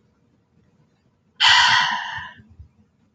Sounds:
Sigh